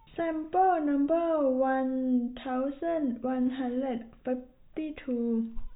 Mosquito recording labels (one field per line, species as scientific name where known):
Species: no mosquito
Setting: cup